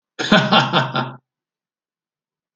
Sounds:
Laughter